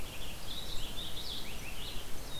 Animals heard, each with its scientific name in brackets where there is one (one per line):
Purple Finch (Haemorhous purpureus)